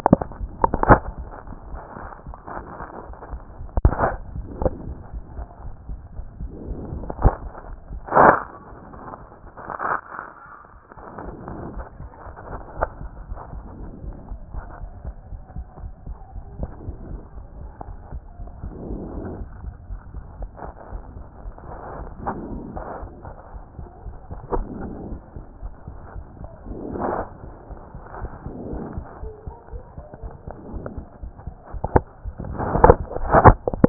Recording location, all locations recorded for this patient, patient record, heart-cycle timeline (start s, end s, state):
aortic valve (AV)
aortic valve (AV)+pulmonary valve (PV)+tricuspid valve (TV)+mitral valve (MV)
#Age: Child
#Sex: Female
#Height: 149.0 cm
#Weight: 33.7 kg
#Pregnancy status: False
#Murmur: Absent
#Murmur locations: nan
#Most audible location: nan
#Systolic murmur timing: nan
#Systolic murmur shape: nan
#Systolic murmur grading: nan
#Systolic murmur pitch: nan
#Systolic murmur quality: nan
#Diastolic murmur timing: nan
#Diastolic murmur shape: nan
#Diastolic murmur grading: nan
#Diastolic murmur pitch: nan
#Diastolic murmur quality: nan
#Outcome: Normal
#Campaign: 2014 screening campaign
0.00	12.95	unannotated
12.95	13.02	diastole
13.02	13.08	S1
13.08	13.28	systole
13.28	13.36	S2
13.36	13.54	diastole
13.54	13.66	S1
13.66	13.80	systole
13.80	13.86	S2
13.86	14.05	diastole
14.05	14.16	S1
14.16	14.30	systole
14.30	14.38	S2
14.38	14.54	diastole
14.54	14.66	S1
14.66	14.80	systole
14.80	14.90	S2
14.90	15.06	diastole
15.06	15.16	S1
15.16	15.30	systole
15.30	15.40	S2
15.40	15.56	diastole
15.56	15.66	S1
15.66	15.82	systole
15.82	15.92	S2
15.92	16.08	diastole
16.08	16.18	S1
16.18	16.34	systole
16.34	16.44	S2
16.44	16.60	diastole
16.60	16.70	S1
16.70	16.86	systole
16.86	16.96	S2
16.96	17.10	diastole
17.10	17.22	S1
17.22	17.36	systole
17.36	17.46	S2
17.46	17.60	diastole
17.60	17.72	S1
17.72	17.86	systole
17.86	17.96	S2
17.96	18.12	diastole
18.12	18.22	S1
18.22	18.40	systole
18.40	18.50	S2
18.50	18.64	diastole
18.64	33.89	unannotated